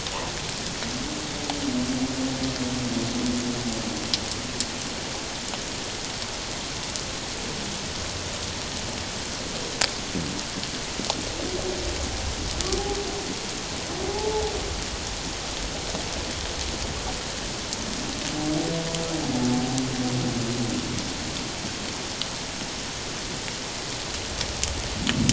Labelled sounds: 14.1	14.4	humpback whale, 0.78 to 0.94 kHz

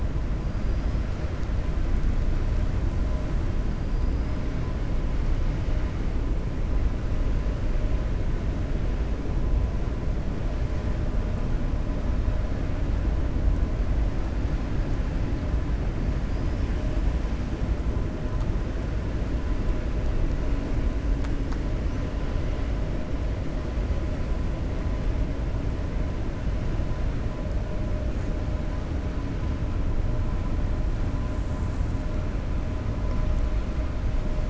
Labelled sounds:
16.2	16.7	killer whale, 4.8 to 5.5 kHz

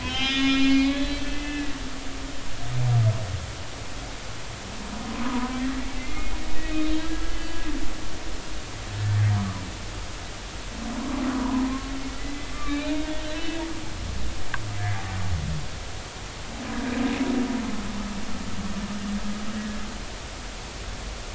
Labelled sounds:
0.0	1.7	humpback whale, 0.96 to 5.4 kHz
5.1	5.5	humpback whale, 0.93 to 1.1 kHz
6.0	7.6	humpback whale, 1.6 to 3.0 kHz
11.3	13.6	humpback whale, 0.90 to 4.0 kHz

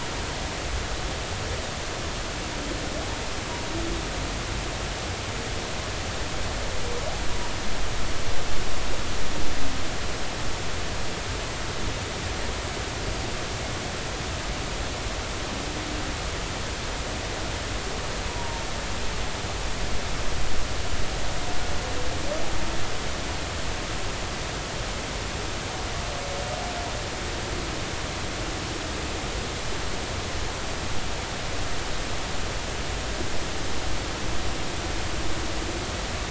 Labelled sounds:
18.3	18.6	humpback whale, 0.86 to 1.0 kHz

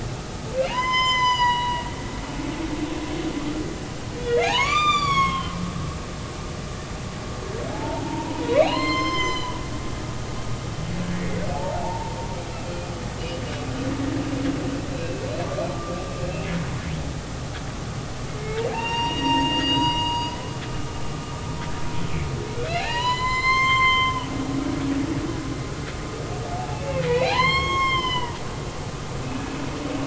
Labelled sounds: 0.6	1.9	humpback whale, 0.80 to 7.3 kHz
4.2	5.5	humpback whale, 0.80 to 7.3 kHz
7.7	10.4	humpback whale, 0.80 to 7.2 kHz
11.5	12.9	humpback whale, 0.80 to 2.5 kHz
14.9	15.2	humpback whale, 2.5 to 2.8 kHz
15.7	16.1	humpback whale, 1.1 to 1.2 kHz
18.7	20.5	humpback whale, 0.80 to 6.8 kHz
22.7	24.3	humpback whale, 0.80 to 7.4 kHz
26.5	28.4	humpback whale, 0.80 to 6.6 kHz
29.2	29.5	humpback whale, 2.5 to 2.7 kHz

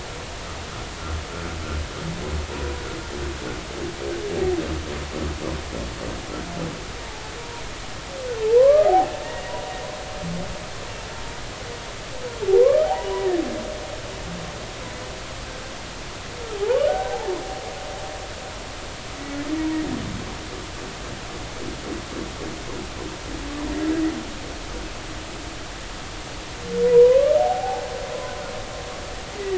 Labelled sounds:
8.6	9.7	humpback whale, 0.80 to 1.3 kHz
12.6	13.4	humpback whale, 0.80 to 2.0 kHz
16.6	17.4	humpback whale, 0.80 to 1.6 kHz
19.6	19.8	humpback whale, 0.90 to 0.99 kHz
26.9	27.9	humpback whale, 0.80 to 1.3 kHz

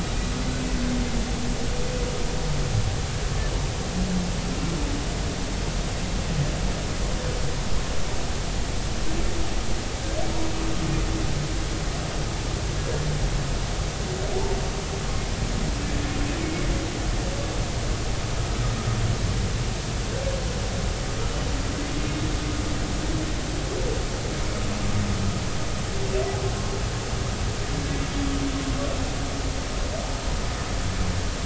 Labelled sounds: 16.4	16.7	humpback whale, 2.1 to 2.3 kHz

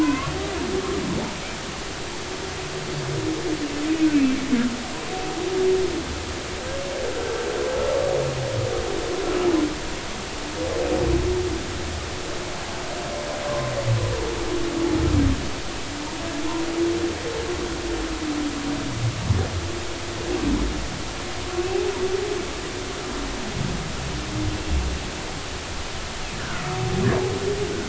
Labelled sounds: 0.0	0.3	humpback whale, 0.96 to 1.2 kHz
4.1	4.4	humpback whale, 2.3 to 2.7 kHz
13.5	13.7	humpback whale, 0.96 to 1.2 kHz
26.3	26.6	humpback whale, 1.3 to 1.8 kHz

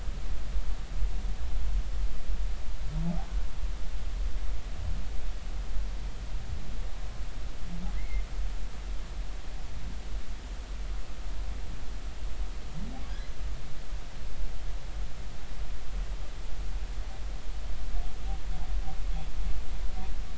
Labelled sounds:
7.9	8.2	humpback whale, 1.9 to 2.3 kHz

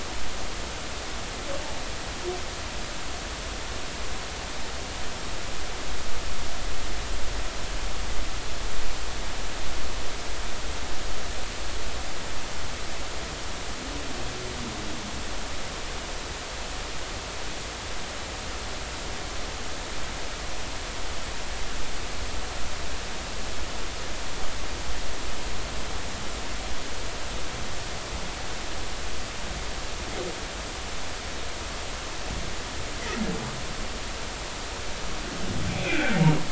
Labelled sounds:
35.7	36.2	humpback whale, 1.3 to 2.6 kHz

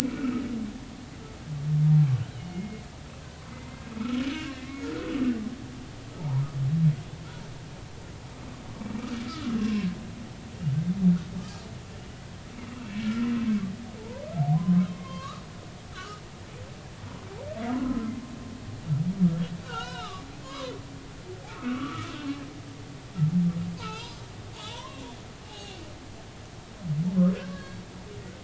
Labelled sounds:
0.2	0.4	humpback whale, 1.2 to 1.5 kHz
2.3	2.8	humpback whale, 2.1 to 3.2 kHz
3.5	3.8	humpback whale, 2.0 to 2.1 kHz
4.5	5.3	humpback whale, 1.1 to 2.7 kHz
6.2	6.5	humpback whale, 0.80 to 1.1 kHz
9.2	9.9	humpback whale, 0.99 to 2.8 kHz
12.8	13.3	humpback whale, 1.3 to 2.4 kHz
14.9	16.2	humpback whale, 0.83 to 4.4 kHz
17.8	18.1	humpback whale, 0.99 to 1.4 kHz
19.6	20.7	humpback whale, 0.80 to 5.3 kHz
21.5	22.1	humpback whale, 1.1 to 1.5 kHz
23.8	25.0	humpback whale, 0.80 to 5.8 kHz
25.4	25.8	humpback whale, 0.80 to 2.9 kHz
27.5	27.8	humpback whale, 1.1 to 4.5 kHz

